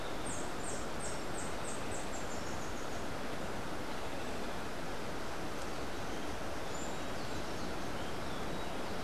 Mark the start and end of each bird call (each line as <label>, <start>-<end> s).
Rufous-tailed Hummingbird (Amazilia tzacatl), 0.0-3.0 s